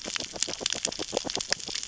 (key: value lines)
label: biophony, grazing
recorder: SoundTrap 600 or HydroMoth